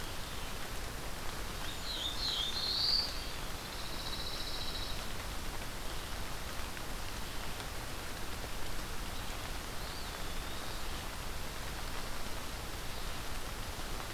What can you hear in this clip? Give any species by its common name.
Black-throated Blue Warbler, Brown Creeper, Pine Warbler, Eastern Wood-Pewee